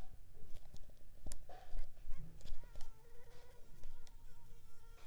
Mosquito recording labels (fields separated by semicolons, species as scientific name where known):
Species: Culex pipiens complex; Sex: female; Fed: unfed; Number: one; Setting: cup